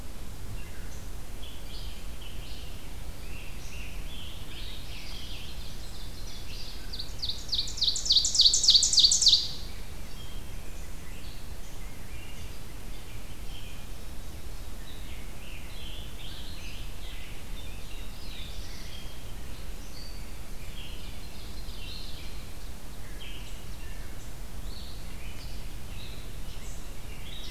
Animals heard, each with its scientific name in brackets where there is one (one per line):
Scarlet Tanager (Piranga olivacea)
Red-eyed Vireo (Vireo olivaceus)
Ovenbird (Seiurus aurocapilla)
Black-throated Blue Warbler (Setophaga caerulescens)